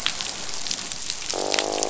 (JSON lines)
{"label": "biophony, croak", "recorder": "SoundTrap 500"}